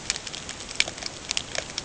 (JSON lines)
{"label": "ambient", "recorder": "HydroMoth"}